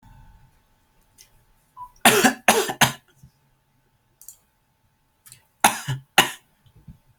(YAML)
expert_labels:
- quality: good
  cough_type: dry
  dyspnea: false
  wheezing: false
  stridor: false
  choking: false
  congestion: false
  nothing: true
  diagnosis: healthy cough
  severity: pseudocough/healthy cough